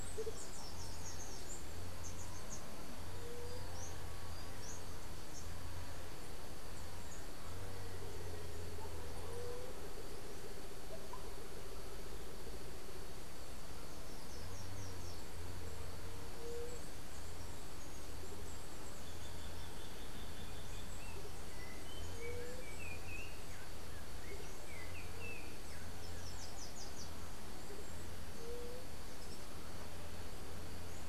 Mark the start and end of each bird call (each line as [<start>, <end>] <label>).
[0.00, 2.79] Chestnut-capped Brushfinch (Arremon brunneinucha)
[0.00, 31.09] Andean Motmot (Momotus aequatorialis)
[13.89, 15.39] Slate-throated Redstart (Myioborus miniatus)
[18.89, 21.09] unidentified bird
[25.89, 27.19] Slate-throated Redstart (Myioborus miniatus)